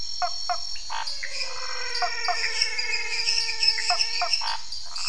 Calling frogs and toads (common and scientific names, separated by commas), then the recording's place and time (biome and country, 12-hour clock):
Elachistocleis matogrosso, Cuyaba dwarf frog (Physalaemus nattereri), Scinax fuscovarius, menwig frog (Physalaemus albonotatus), lesser tree frog (Dendropsophus minutus), dwarf tree frog (Dendropsophus nanus), waxy monkey tree frog (Phyllomedusa sauvagii), Pithecopus azureus
Cerrado, Brazil, 8:00pm